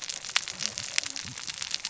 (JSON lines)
{"label": "biophony, cascading saw", "recorder": "SoundTrap 600 or HydroMoth"}